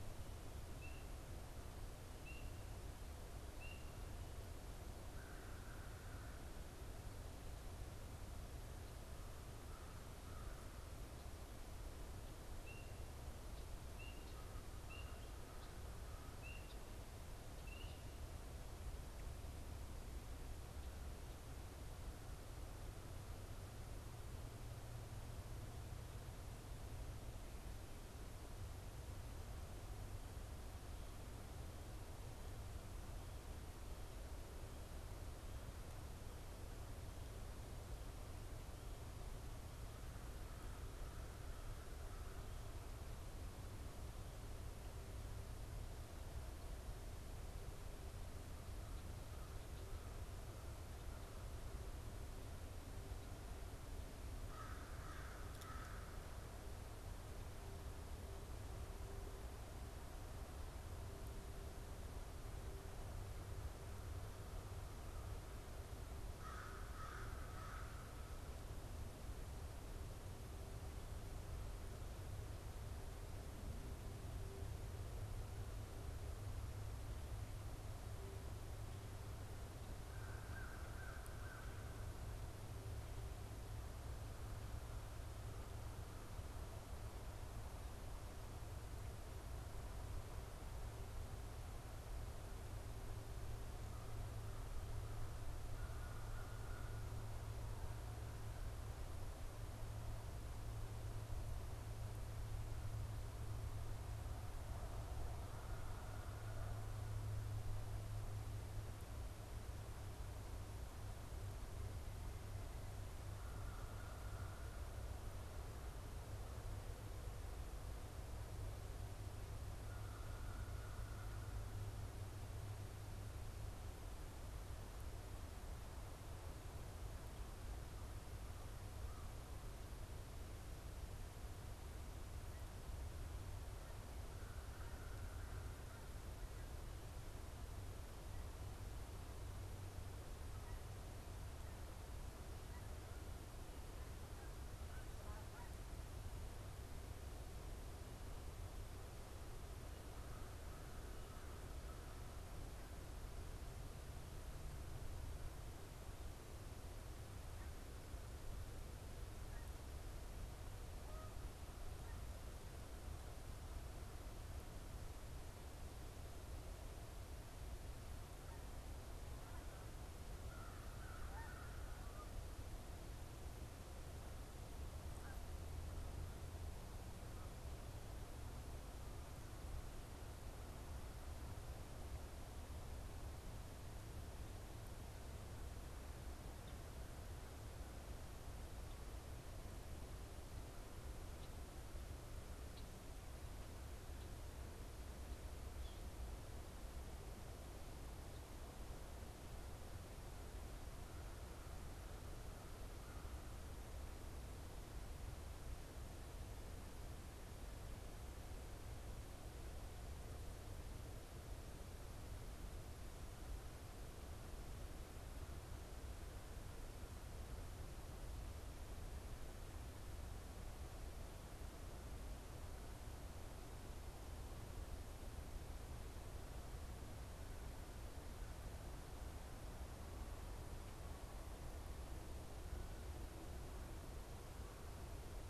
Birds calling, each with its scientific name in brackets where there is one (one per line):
Canada Goose (Branta canadensis)
Red-winged Blackbird (Agelaius phoeniceus)
American Crow (Corvus brachyrhynchos)
unidentified bird